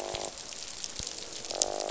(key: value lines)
label: biophony, croak
recorder: SoundTrap 500